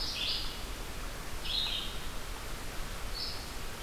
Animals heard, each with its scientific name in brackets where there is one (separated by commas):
Red-eyed Vireo (Vireo olivaceus)